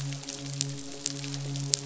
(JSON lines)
{"label": "biophony, midshipman", "recorder": "SoundTrap 500"}